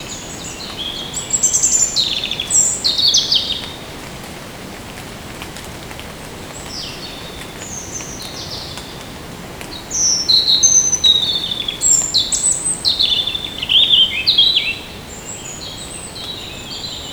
Is there an animal around?
yes